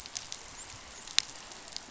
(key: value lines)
label: biophony, dolphin
recorder: SoundTrap 500